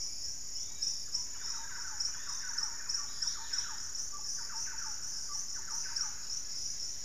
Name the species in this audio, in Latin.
Tolmomyias assimilis, unidentified bird, Campylorhynchus turdinus, Pachysylvia hypoxantha, Monasa nigrifrons